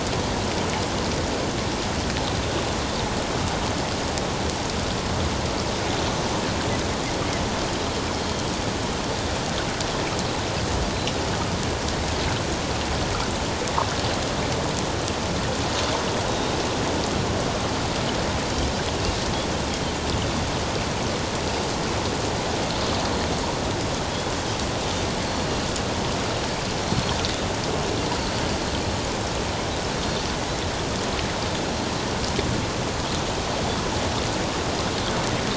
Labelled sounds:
10.9	11.2	Pacific white-sided dolphin, 3.8 to 4.1 kHz
16.3	16.6	Pacific white-sided dolphin, 3.7 to 3.9 kHz
25.3	25.5	Pacific white-sided dolphin, 4.2 to 4.4 kHz

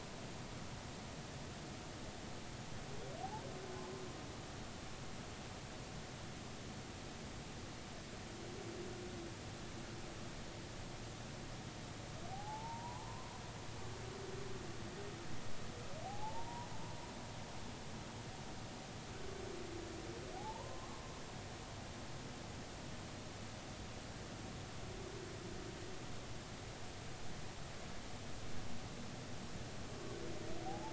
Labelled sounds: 12.3	13.4	humpback whale, 0.80 to 1.1 kHz
16.0	16.7	humpback whale, 0.80 to 1.0 kHz
20.4	21.2	humpback whale, 0.80 to 1.2 kHz
30.7	30.9	humpback whale, 0.80 to 0.96 kHz

